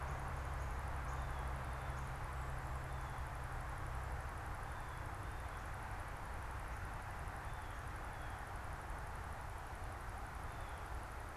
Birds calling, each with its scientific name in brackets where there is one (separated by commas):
Blue Jay (Cyanocitta cristata), Northern Cardinal (Cardinalis cardinalis)